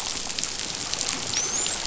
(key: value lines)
label: biophony, dolphin
recorder: SoundTrap 500